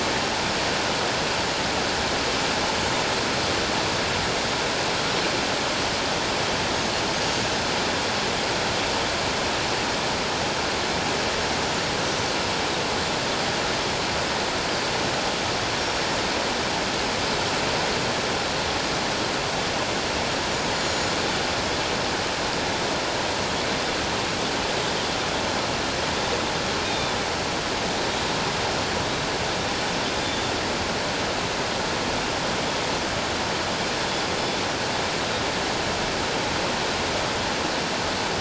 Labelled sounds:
7.1	7.5	Pacific white-sided dolphin, 6.2 to 7.0 kHz
15.8	16.1	Pacific white-sided dolphin, 5.3 to 5.6 kHz
20.7	21.2	Pacific white-sided dolphin, 4.2 to 7.2 kHz
26.8	27.2	Pacific white-sided dolphin, 3.4 to 3.8 kHz
30.2	30.5	Pacific white-sided dolphin, 3.4 to 3.7 kHz

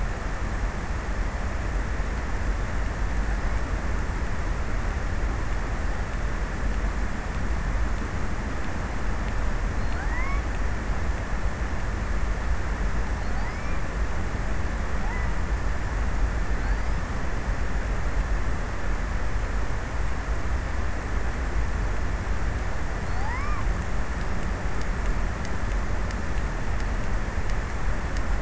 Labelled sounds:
9.2	11.2	killer whale, offshore, 0.43 to 2.6 kHz
13.0	14.1	killer whale, offshore, 0.32 to 2.6 kHz
14.8	15.8	killer whale, offshore, 0.30 to 2.5 kHz
16.2	17.7	killer whale, offshore, 0.45 to 2.7 kHz
22.6	24.3	killer whale, offshore, 0.41 to 2.8 kHz

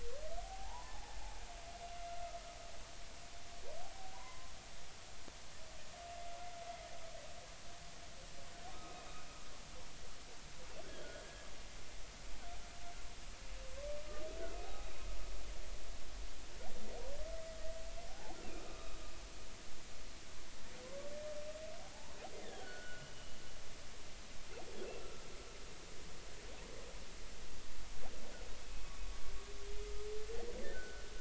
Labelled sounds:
0.4	1.2	humpback whale, 0.80 to 1.1 kHz
4.1	4.5	humpback whale, 0.93 to 1.1 kHz
11.2	11.5	humpback whale, 1.6 to 1.7 kHz
14.6	14.9	humpback whale, 0.80 to 0.86 kHz
18.1	19.0	humpback whale, 0.80 to 2.6 kHz
21.8	23.1	humpback whale, 0.80 to 3.7 kHz
25.0	25.2	humpback whale, 1.2 to 1.4 kHz
30.6	31.1	humpback whale, 1.4 to 1.9 kHz

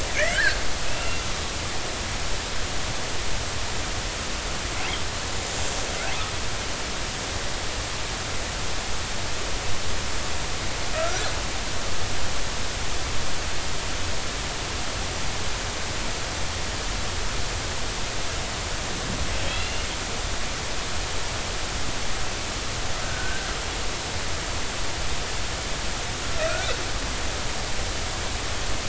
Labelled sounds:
0.3	1.2	killer whale, northern resident, G clan, 1.4 to 2.9 kHz
10.9	11.3	killer whale, northern resident, G clan, 1.2 to 1.6 kHz
19.4	19.9	killer whale, northern resident, G clan, 2.5 to 4.2 kHz
23.0	23.5	killer whale, northern resident, G clan, 1.4 to 1.7 kHz
26.4	26.7	killer whale, northern resident, G clan, 1.3 to 1.6 kHz

